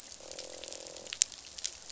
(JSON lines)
{"label": "biophony, croak", "recorder": "SoundTrap 500"}